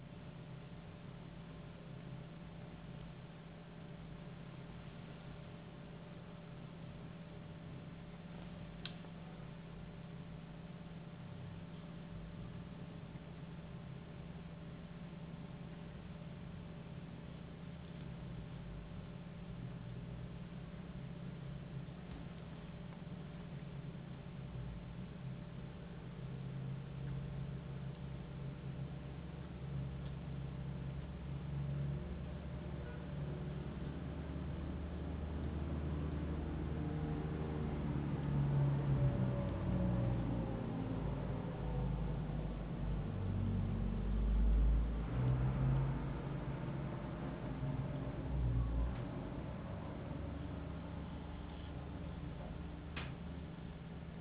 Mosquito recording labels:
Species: no mosquito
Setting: insect culture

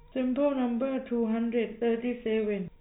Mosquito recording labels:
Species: no mosquito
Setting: cup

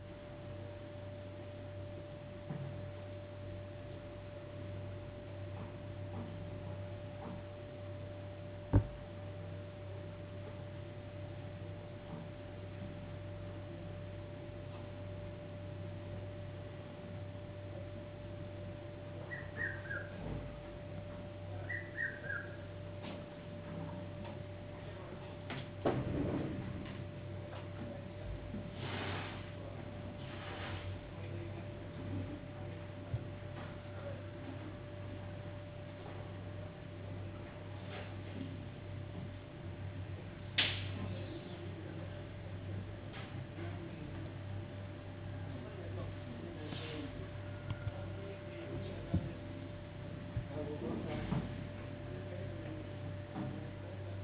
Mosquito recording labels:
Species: no mosquito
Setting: insect culture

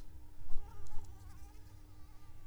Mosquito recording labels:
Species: Anopheles arabiensis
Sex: female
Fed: unfed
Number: one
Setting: cup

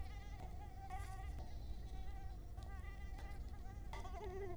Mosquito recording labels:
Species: Culex quinquefasciatus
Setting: cup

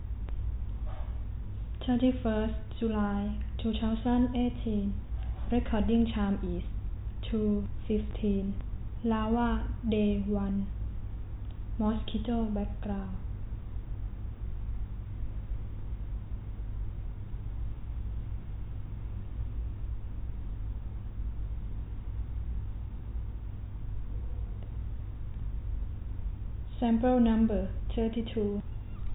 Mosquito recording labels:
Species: no mosquito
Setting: cup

